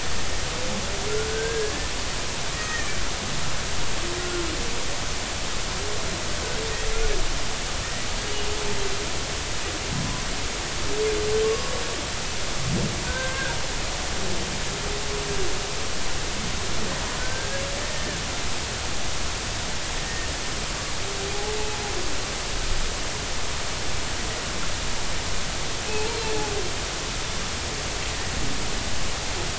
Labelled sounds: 1.3	1.7	humpback whale, 1.5 to 1.7 kHz
2.6	2.9	humpback whale, 1.7 to 2.0 kHz
4.2	4.5	humpback whale, 1.4 to 1.5 kHz
11.4	11.7	humpback whale, 0.96 to 1.2 kHz
13.1	13.6	humpback whale, 0.93 to 1.7 kHz
17.2	17.6	humpback whale, 1.4 to 1.7 kHz
20.0	20.3	humpback whale, 1.8 to 1.9 kHz
25.9	26.2	humpback whale, 0.83 to 2.8 kHz

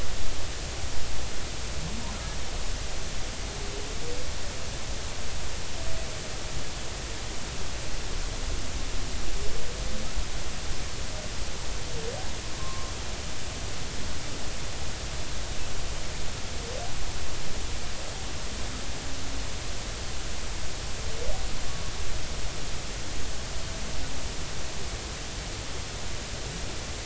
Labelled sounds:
12.6	12.9	humpback whale, 0.99 to 1.1 kHz

